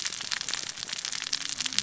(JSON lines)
{"label": "biophony, cascading saw", "recorder": "SoundTrap 600 or HydroMoth"}